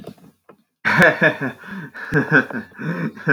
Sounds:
Laughter